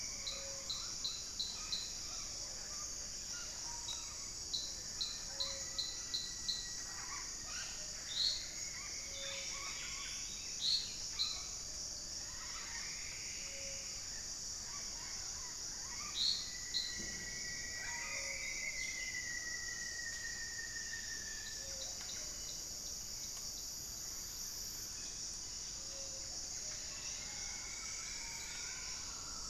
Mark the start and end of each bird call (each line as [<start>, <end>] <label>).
[0.00, 1.00] Plumbeous Antbird (Myrmelastes hyperythrus)
[0.00, 16.40] Gray-fronted Dove (Leptotila rufaxilla)
[0.00, 16.60] Red-bellied Macaw (Orthopsittaca manilatus)
[4.90, 14.90] Plumbeous Antbird (Myrmelastes hyperythrus)
[7.10, 12.50] Plumbeous Pigeon (Patagioenas plumbea)
[15.80, 22.50] Rufous-fronted Antthrush (Formicarius rufifrons)
[17.50, 29.50] Gray-fronted Dove (Leptotila rufaxilla)
[26.50, 29.10] Plumbeous Antbird (Myrmelastes hyperythrus)